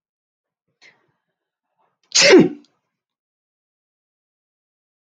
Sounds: Sneeze